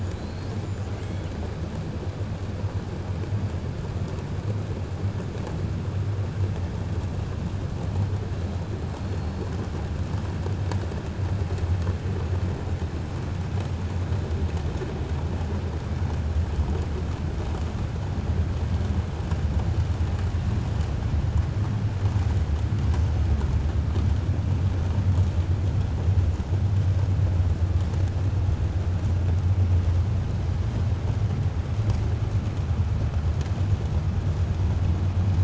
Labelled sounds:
0.1	0.6	killer whale, 3.7 to 5.8 kHz

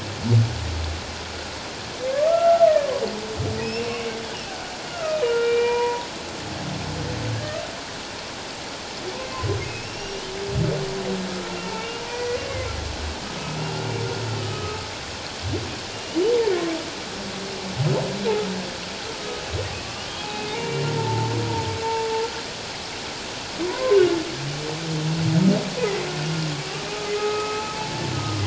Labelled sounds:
2.3	2.9	humpback whale, 1.2 to 2.0 kHz
3.6	4.2	humpback whale, 2.2 to 5.6 kHz
4.9	6.0	humpback whale, 0.88 to 2.4 kHz
9.8	10.3	humpback whale, 2.7 to 3.0 kHz
12.1	12.4	humpback whale, 1.9 to 2.1 kHz
14.4	14.8	humpback whale, 1.2 to 3.0 kHz
15.9	16.2	humpback whale, 2.8 to 3.0 kHz
20.2	21.3	humpback whale, 0.84 to 2.8 kHz
23.6	24.1	humpback whale, 0.94 to 1.2 kHz
25.8	26.0	humpback whale, 1.9 to 2.1 kHz
27.2	27.8	humpback whale, 0.81 to 2.6 kHz

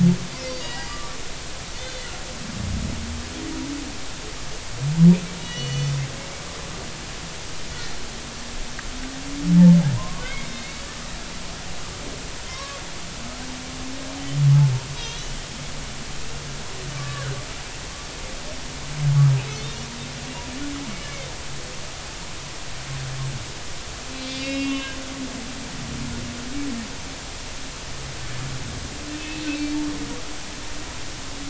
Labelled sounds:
0.6	1.2	humpback whale, 0.90 to 4.9 kHz
1.8	2.0	humpback whale, 2.9 to 3.7 kHz
5.4	6.0	humpback whale, 2.8 to 6.1 kHz
9.9	10.8	humpback whale, 0.93 to 3.9 kHz
12.5	12.8	humpback whale, 0.99 to 1.2 kHz
14.9	15.3	humpback whale, 3.1 to 4.0 kHz
17.0	17.4	humpback whale, 1.1 to 1.8 kHz
19.3	19.6	humpback whale, 2.4 to 2.8 kHz
24.2	25.0	humpback whale, 0.96 to 5.1 kHz
29.2	29.4	humpback whale, 2.6 to 2.7 kHz

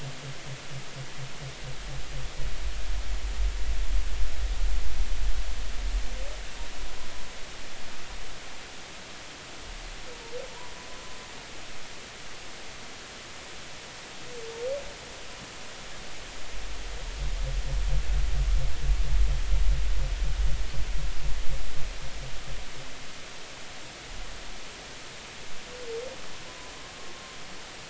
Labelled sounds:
26.5	26.7	humpback whale, 0.96 to 1.0 kHz

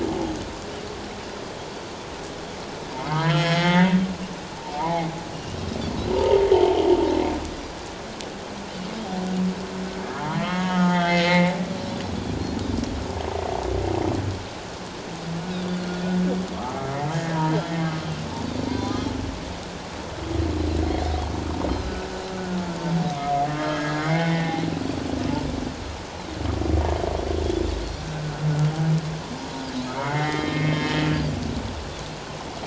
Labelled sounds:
3.0	4.0	humpback whale, 0.84 to 5.6 kHz
4.7	5.1	humpback whale, 0.78 to 2.2 kHz
5.3	5.6	Pacific white-sided dolphin, 2.8 to 3.0 kHz
6.1	6.8	humpback whale, 0.78 to 1.0 kHz
10.3	11.5	humpback whale, 0.81 to 4.4 kHz
15.5	15.8	Pacific white-sided dolphin, 3.3 to 4.1 kHz
16.5	19.0	humpback whale, 0.91 to 2.2 kHz
18.4	18.7	Pacific white-sided dolphin, 4.4 to 4.7 kHz
21.7	21.9	Pacific white-sided dolphin, 1.2 to 4.2 kHz
23.5	24.6	humpback whale, 0.78 to 3.2 kHz
29.9	30.8	humpback whale, 1.8 to 2.2 kHz

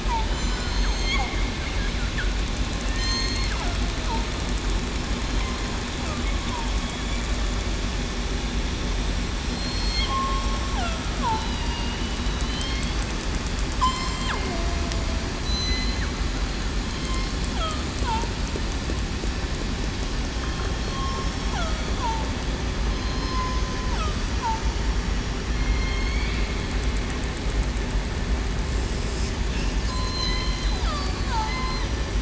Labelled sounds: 0.3	1.4	killer whale, southern resident, 2.1 to 7.2 kHz
2.9	3.4	killer whale, southern resident, 1.8 to 7.5 kHz
9.5	10.1	killer whale, southern resident, 4.1 to 4.5 kHz
11.4	12.0	killer whale, southern resident, 2.8 to 4.9 kHz
12.4	12.8	killer whale, southern resident, 3.0 to 3.2 kHz
13.8	14.1	killer whale, southern resident, 0.96 to 1.2 kHz
14.5	14.8	killer whale, southern resident, 0.66 to 0.75 kHz
15.4	16.0	killer whale, southern resident, 4.0 to 6.1 kHz
16.9	17.2	killer whale, southern resident, 3.1 to 3.2 kHz
20.9	21.2	killer whale, southern resident, 0.98 to 1.1 kHz
22.9	23.6	killer whale, southern resident, 0.98 to 4.2 kHz
25.5	26.0	killer whale, southern resident, 4.2 to 4.3 kHz
29.9	30.8	killer whale, southern resident, 4.0 to 4.2 kHz
31.1	31.5	killer whale, southern resident, 0.84 to 1.1 kHz

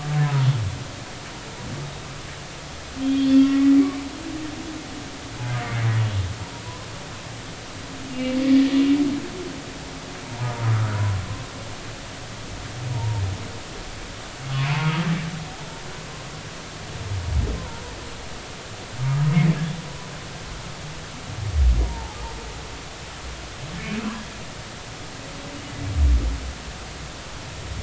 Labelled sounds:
3.0	3.8	humpback whale, 1.3 to 3.6 kHz
8.1	8.4	humpback whale, 2.5 to 2.9 kHz
10.2	10.6	humpback whale, 0.90 to 1.0 kHz
12.9	13.2	humpback whale, 0.86 to 0.99 kHz
14.6	14.9	humpback whale, 2.2 to 2.6 kHz
17.5	17.8	humpback whale, 0.86 to 1.1 kHz
19.0	19.3	humpback whale, 1.2 to 1.3 kHz
21.8	22.2	humpback whale, 0.80 to 1.0 kHz

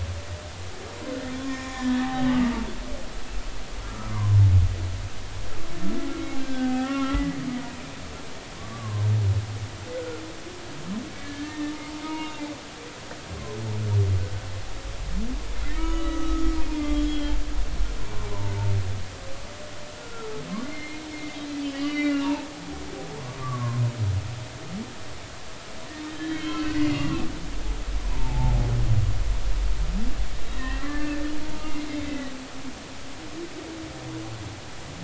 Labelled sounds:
1.4	2.1	humpback whale, 0.96 to 3.5 kHz
3.8	4.4	humpback whale, 0.93 to 1.4 kHz
6.4	7.4	humpback whale, 0.80 to 2.2 kHz
8.6	9.0	humpback whale, 0.93 to 1.2 kHz
9.9	10.2	humpback whale, 1.3 to 1.5 kHz
11.2	12.4	humpback whale, 0.90 to 2.9 kHz
15.6	16.4	humpback whale, 0.93 to 6.2 kHz
16.8	17.4	humpback whale, 1.1 to 4.2 kHz
20.0	22.5	humpback whale, 0.83 to 3.5 kHz
23.4	23.8	humpback whale, 0.96 to 1.2 kHz
26.3	27.3	humpback whale, 1.0 to 3.3 kHz
28.1	28.7	humpback whale, 0.80 to 1.0 kHz
30.6	31.1	humpback whale, 1.7 to 2.8 kHz
32.0	32.3	humpback whale, 1.9 to 2.1 kHz

